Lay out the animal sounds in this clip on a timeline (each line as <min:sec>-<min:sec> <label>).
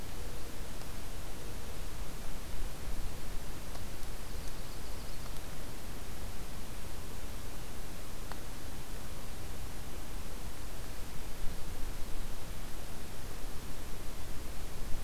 0:04.2-0:05.4 Yellow-rumped Warbler (Setophaga coronata)